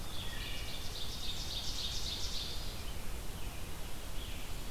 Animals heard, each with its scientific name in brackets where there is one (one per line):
Scarlet Tanager (Piranga olivacea)
Ovenbird (Seiurus aurocapilla)
Wood Thrush (Hylocichla mustelina)